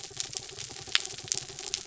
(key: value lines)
label: anthrophony, mechanical
recorder: SoundTrap 300